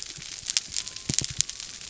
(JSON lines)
{"label": "biophony", "recorder": "SoundTrap 300"}